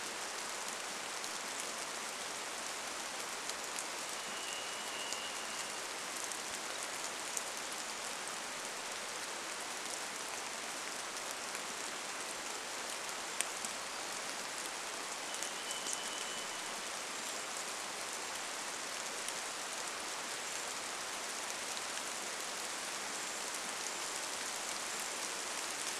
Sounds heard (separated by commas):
rain, Brown Creeper call, Varied Thrush song